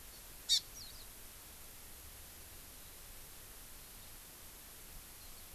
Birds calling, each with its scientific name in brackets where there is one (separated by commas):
Warbling White-eye (Zosterops japonicus), Hawaii Amakihi (Chlorodrepanis virens)